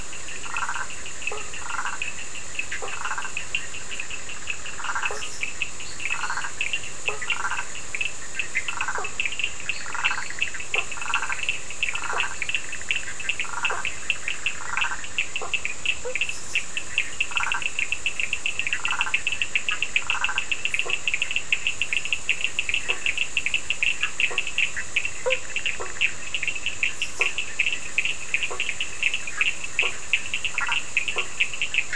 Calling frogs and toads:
Boana prasina (Hylidae), Sphaenorhynchus surdus (Hylidae), Boana faber (Hylidae), Boana bischoffi (Hylidae), Boana leptolineata (Hylidae)

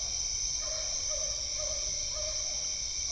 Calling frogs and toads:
Physalaemus cuvieri (Leptodactylidae)

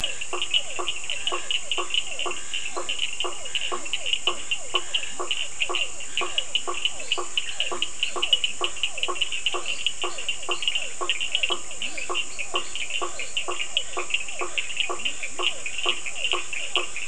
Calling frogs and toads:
Scinax perereca (Hylidae), Boana faber (Hylidae), Physalaemus cuvieri (Leptodactylidae), Sphaenorhynchus surdus (Hylidae), Leptodactylus latrans (Leptodactylidae), Dendropsophus minutus (Hylidae)

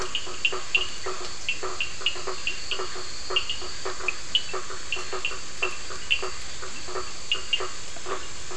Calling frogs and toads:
Boana faber (Hylidae), Elachistocleis bicolor (Microhylidae), Sphaenorhynchus surdus (Hylidae)

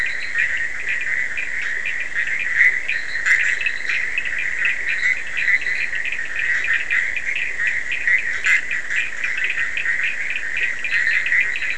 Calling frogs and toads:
Boana leptolineata (Hylidae), Boana bischoffi (Hylidae), Boana faber (Hylidae), Scinax perereca (Hylidae), Sphaenorhynchus surdus (Hylidae)

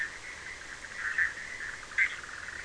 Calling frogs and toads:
Boana bischoffi (Hylidae)

